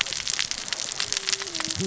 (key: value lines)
label: biophony, cascading saw
recorder: SoundTrap 600 or HydroMoth